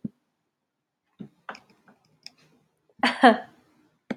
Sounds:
Laughter